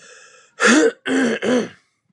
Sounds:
Throat clearing